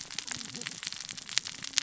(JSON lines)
{"label": "biophony, cascading saw", "recorder": "SoundTrap 600 or HydroMoth"}